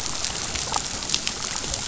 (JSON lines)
{"label": "biophony, damselfish", "recorder": "SoundTrap 500"}